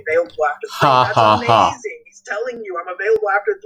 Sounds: Laughter